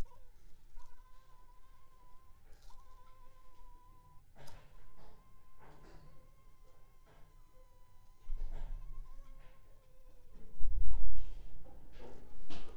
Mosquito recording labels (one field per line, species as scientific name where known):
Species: Anopheles funestus s.s.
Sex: female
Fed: unfed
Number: one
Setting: cup